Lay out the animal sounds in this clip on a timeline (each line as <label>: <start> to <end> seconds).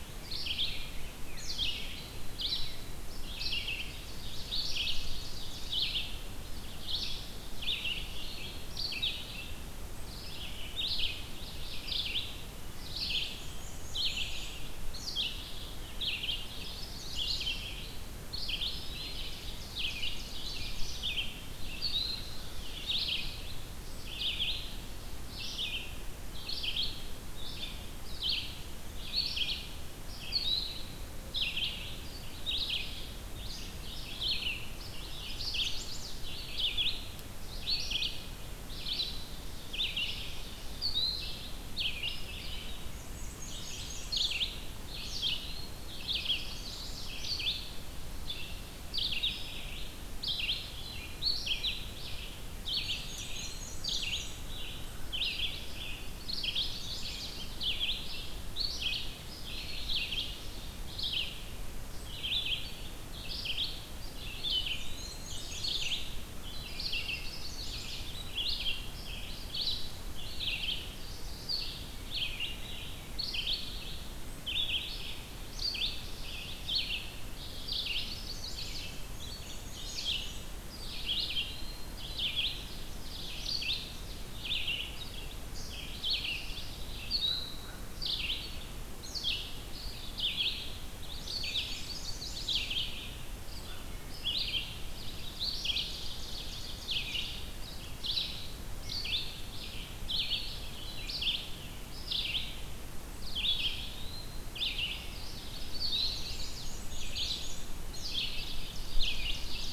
Red-eyed Vireo (Vireo olivaceus): 0.0 to 44.6 seconds
Ovenbird (Seiurus aurocapilla): 3.0 to 5.9 seconds
Black-and-white Warbler (Mniotilta varia): 12.7 to 14.9 seconds
Chestnut-sided Warbler (Setophaga pensylvanica): 16.1 to 17.7 seconds
Eastern Wood-Pewee (Contopus virens): 18.1 to 19.3 seconds
Ovenbird (Seiurus aurocapilla): 18.7 to 21.3 seconds
Chestnut-sided Warbler (Setophaga pensylvanica): 34.5 to 36.3 seconds
Black-and-white Warbler (Mniotilta varia): 42.5 to 44.9 seconds
Eastern Wood-Pewee (Contopus virens): 44.7 to 46.1 seconds
Red-eyed Vireo (Vireo olivaceus): 44.9 to 103.8 seconds
Chestnut-sided Warbler (Setophaga pensylvanica): 45.9 to 47.3 seconds
Black-and-white Warbler (Mniotilta varia): 52.3 to 54.7 seconds
Eastern Wood-Pewee (Contopus virens): 52.5 to 54.0 seconds
Chestnut-sided Warbler (Setophaga pensylvanica): 55.8 to 57.4 seconds
Ovenbird (Seiurus aurocapilla): 59.2 to 60.7 seconds
Eastern Wood-Pewee (Contopus virens): 59.3 to 60.0 seconds
Eastern Wood-Pewee (Contopus virens): 64.0 to 65.6 seconds
Black-and-white Warbler (Mniotilta varia): 64.3 to 66.4 seconds
Chestnut-sided Warbler (Setophaga pensylvanica): 66.6 to 68.1 seconds
Chestnut-sided Warbler (Setophaga pensylvanica): 77.6 to 79.0 seconds
Black-and-white Warbler (Mniotilta varia): 78.6 to 81.4 seconds
Eastern Wood-Pewee (Contopus virens): 80.4 to 82.1 seconds
Ovenbird (Seiurus aurocapilla): 82.5 to 84.2 seconds
American Crow (Corvus brachyrhynchos): 87.2 to 87.9 seconds
Eastern Wood-Pewee (Contopus virens): 89.6 to 90.5 seconds
Black-and-white Warbler (Mniotilta varia): 90.9 to 93.2 seconds
Chestnut-sided Warbler (Setophaga pensylvanica): 91.3 to 92.8 seconds
Ovenbird (Seiurus aurocapilla): 95.1 to 97.6 seconds
Eastern Wood-Pewee (Contopus virens): 103.3 to 104.5 seconds
Red-eyed Vireo (Vireo olivaceus): 104.4 to 109.7 seconds
Chestnut-sided Warbler (Setophaga pensylvanica): 105.3 to 106.8 seconds
Black-and-white Warbler (Mniotilta varia): 106.0 to 108.1 seconds
Ovenbird (Seiurus aurocapilla): 107.7 to 109.7 seconds